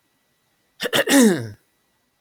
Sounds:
Throat clearing